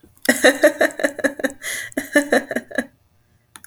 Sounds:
Laughter